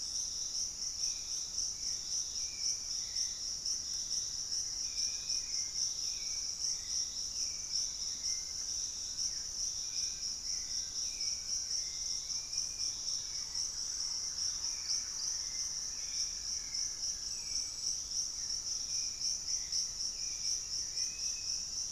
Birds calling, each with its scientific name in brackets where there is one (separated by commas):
Hauxwell's Thrush (Turdus hauxwelli), Dusky-capped Flycatcher (Myiarchus tuberculifer), Black-faced Antthrush (Formicarius analis), Thrush-like Wren (Campylorhynchus turdinus), Buff-throated Woodcreeper (Xiphorhynchus guttatus), Fasciated Antshrike (Cymbilaimus lineatus), unidentified bird